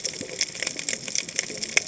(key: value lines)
label: biophony, cascading saw
recorder: HydroMoth